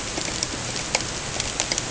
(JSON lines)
{"label": "ambient", "recorder": "HydroMoth"}